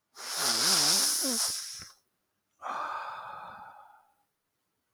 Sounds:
Sigh